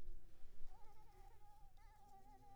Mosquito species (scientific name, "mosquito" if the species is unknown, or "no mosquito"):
Anopheles arabiensis